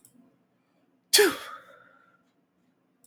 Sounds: Sneeze